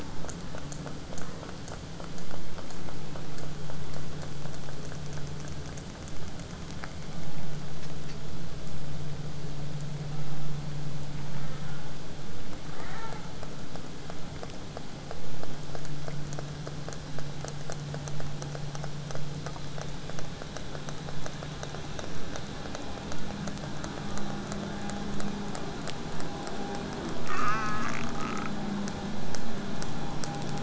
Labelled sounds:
10.0	10.6	killer whale, southern resident, J pod, 0.47 to 1.6 kHz
11.3	11.9	killer whale, southern resident, 0.09 to 2.3 kHz
12.7	13.3	killer whale, southern resident, 0.05 to 4.1 kHz

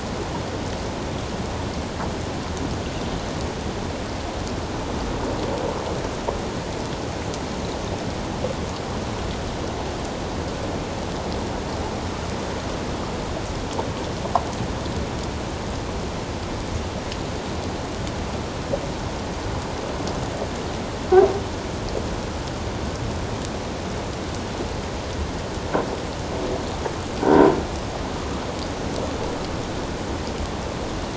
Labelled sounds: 27.2	27.5	croaking sound likely from a nearby submerged object, 1.4 to 1.6 kHz

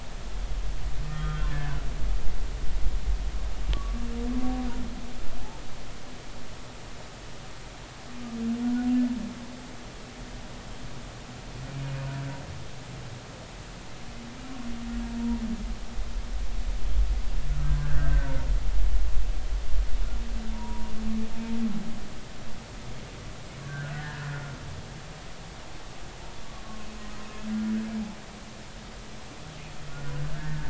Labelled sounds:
1.0	1.8	humpback whale, 1.2 to 3.3 kHz
3.7	4.0	humpback whale, 1.1 to 1.2 kHz
17.8	18.4	humpback whale, 1.2 to 1.8 kHz
20.5	20.9	humpback whale, 0.86 to 1.0 kHz
23.6	24.2	humpback whale, 1.4 to 2.0 kHz

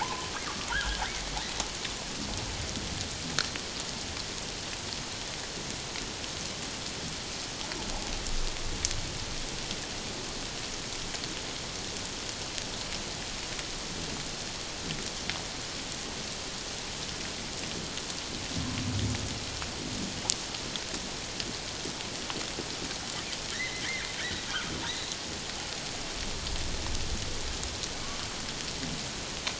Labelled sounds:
0.0	1.0	humpback whale, 0.78 to 1.7 kHz
23.5	24.1	humpback whale, 1.6 to 2.3 kHz

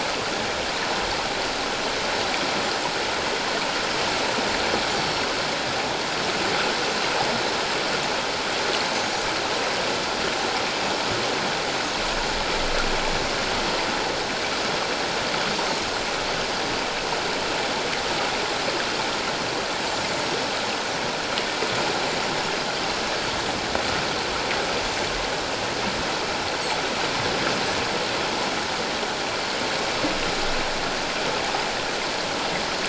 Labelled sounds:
5.0	5.3	Pacific white-sided dolphin, 5.4 to 5.7 kHz

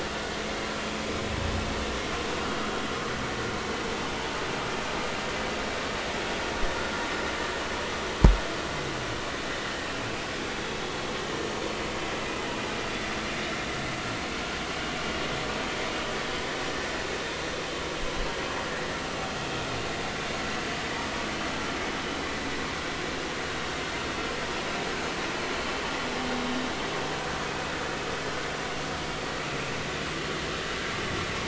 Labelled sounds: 1.1	1.3	vessel noise, 3.7 to 3.9 kHz

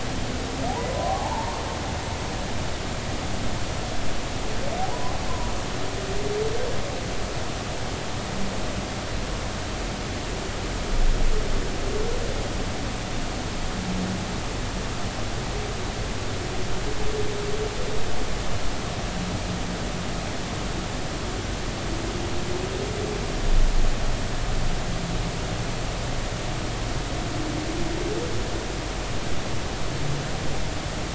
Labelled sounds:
0.9	1.6	humpback whale, 0.80 to 1.2 kHz

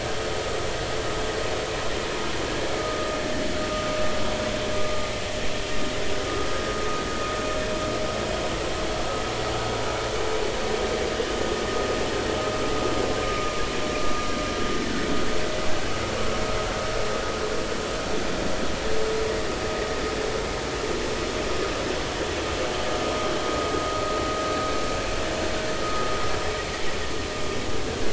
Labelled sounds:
13.3	13.5	vessel noise, 1.18 to 1.25 kHz
25.8	26.1	vessel noise, 1.2 to 1.4 kHz

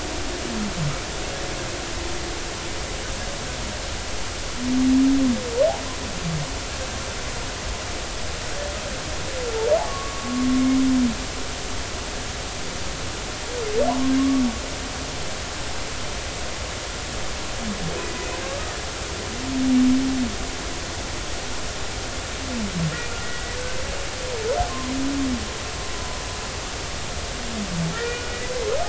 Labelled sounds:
9.8	10.5	humpback whale, 1.0 to 1.2 kHz
14.2	14.4	humpback whale, 1.0 to 1.2 kHz
23.2	23.6	humpback whale, 1.9 to 2.0 kHz
25.7	26.2	humpback whale, 0.96 to 1.1 kHz
27.9	28.4	humpback whale, 1.3 to 2.5 kHz

